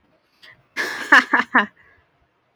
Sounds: Laughter